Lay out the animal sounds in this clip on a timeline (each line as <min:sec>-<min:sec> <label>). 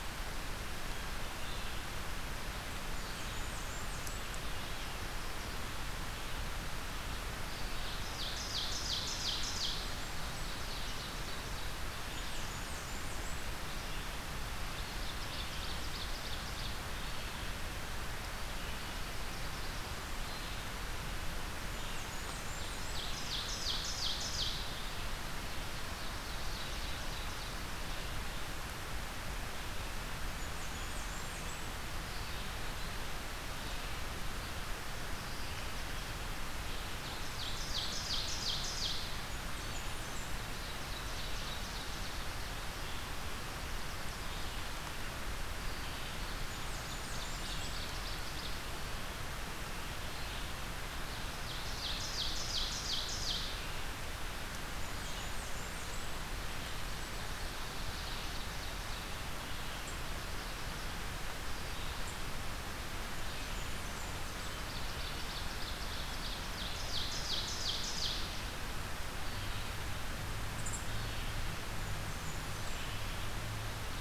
0:00.0-0:15.2 Red-eyed Vireo (Vireo olivaceus)
0:02.6-0:04.3 Blackburnian Warbler (Setophaga fusca)
0:07.8-0:11.9 Ovenbird (Seiurus aurocapilla)
0:09.2-0:10.6 Blackburnian Warbler (Setophaga fusca)
0:11.9-0:13.6 Blackburnian Warbler (Setophaga fusca)
0:14.8-0:16.9 Ovenbird (Seiurus aurocapilla)
0:16.8-1:13.4 Red-eyed Vireo (Vireo olivaceus)
0:18.4-0:19.9 Ovenbird (Seiurus aurocapilla)
0:21.6-0:23.8 Blackburnian Warbler (Setophaga fusca)
0:22.1-0:24.8 Ovenbird (Seiurus aurocapilla)
0:25.9-0:27.7 Ovenbird (Seiurus aurocapilla)
0:30.3-0:31.8 Blackburnian Warbler (Setophaga fusca)
0:36.6-0:39.2 Ovenbird (Seiurus aurocapilla)
0:39.0-0:40.5 Blackburnian Warbler (Setophaga fusca)
0:40.3-0:42.5 Ovenbird (Seiurus aurocapilla)
0:46.1-0:48.6 Ovenbird (Seiurus aurocapilla)
0:46.5-0:47.9 Blackburnian Warbler (Setophaga fusca)
0:51.2-0:53.6 Ovenbird (Seiurus aurocapilla)
0:54.6-0:56.3 Blackburnian Warbler (Setophaga fusca)
0:57.6-0:59.3 Ovenbird (Seiurus aurocapilla)
1:03.1-1:04.5 Blackburnian Warbler (Setophaga fusca)
1:04.4-1:08.4 Ovenbird (Seiurus aurocapilla)
1:10.5-1:10.9 unknown mammal
1:11.7-1:12.9 Blackburnian Warbler (Setophaga fusca)